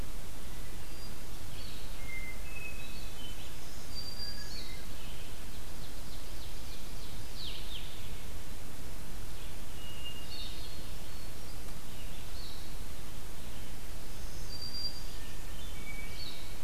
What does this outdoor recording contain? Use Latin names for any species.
Catharus guttatus, Vireo solitarius, Setophaga virens, Seiurus aurocapilla